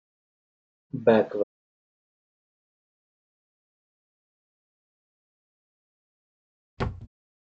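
At 0.94 seconds, someone says "backward." Then, at 6.77 seconds, a wooden drawer closes.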